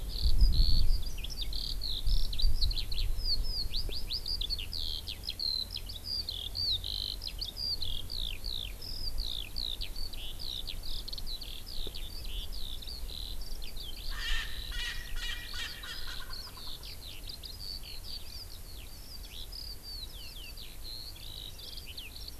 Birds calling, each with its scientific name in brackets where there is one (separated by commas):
Eurasian Skylark (Alauda arvensis), Erckel's Francolin (Pternistis erckelii)